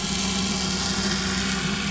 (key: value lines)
label: anthrophony, boat engine
recorder: SoundTrap 500